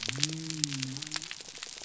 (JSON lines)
{"label": "biophony", "recorder": "SoundTrap 300"}